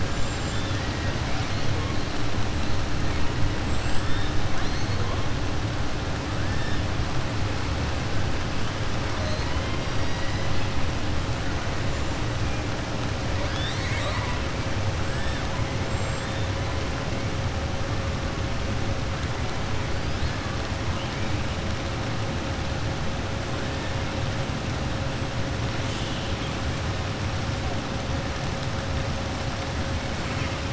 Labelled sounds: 0.0	0.7	killer whale, southern resident, 6.6 to 7.8 kHz
13.3	14.4	killer whale, southern resident, 0.67 to 7.9 kHz
25.8	26.5	killer whale, southern resident, 2.7 to 4.3 kHz

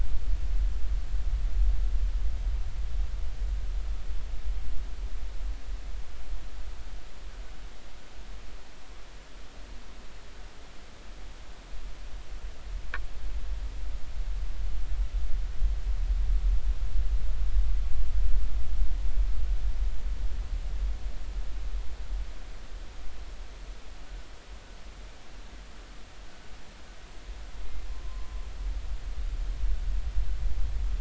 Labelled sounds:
28.0	28.3	humpback whale, 0.96 to 1.1 kHz

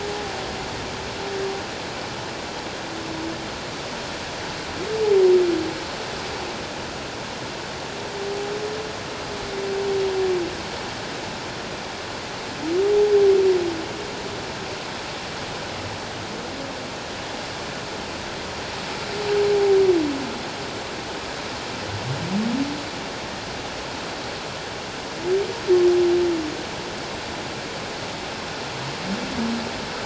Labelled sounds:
19.5	19.8	humpback whale, 0.78 to 0.91 kHz

